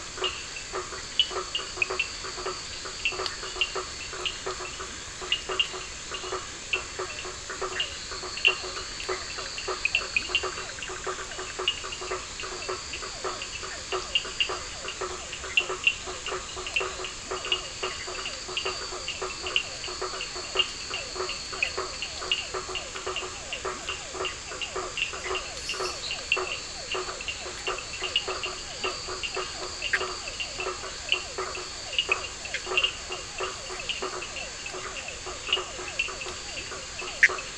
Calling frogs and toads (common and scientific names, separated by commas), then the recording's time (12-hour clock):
blacksmith tree frog (Boana faber), Cochran's lime tree frog (Sphaenorhynchus surdus), two-colored oval frog (Elachistocleis bicolor), Physalaemus cuvieri
10:15pm